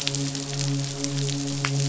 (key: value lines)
label: biophony, midshipman
recorder: SoundTrap 500